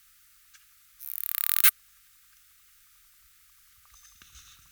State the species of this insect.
Poecilimon obesus